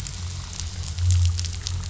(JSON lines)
{"label": "anthrophony, boat engine", "recorder": "SoundTrap 500"}